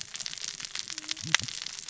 {"label": "biophony, cascading saw", "recorder": "SoundTrap 600 or HydroMoth"}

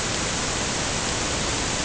{"label": "ambient", "recorder": "HydroMoth"}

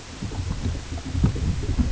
{"label": "ambient", "recorder": "HydroMoth"}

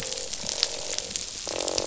{"label": "biophony, croak", "recorder": "SoundTrap 500"}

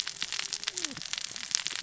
{"label": "biophony, cascading saw", "recorder": "SoundTrap 600 or HydroMoth"}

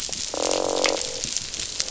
{"label": "biophony, croak", "recorder": "SoundTrap 500"}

